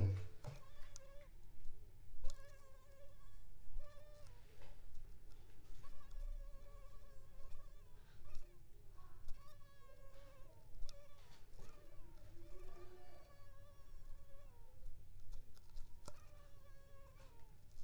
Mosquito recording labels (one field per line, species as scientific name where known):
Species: Culex pipiens complex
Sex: female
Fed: unfed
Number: one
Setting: cup